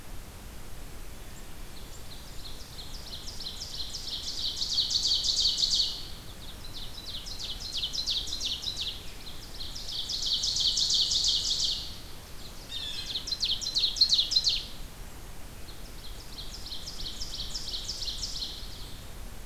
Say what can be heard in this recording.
Ovenbird, Blue Jay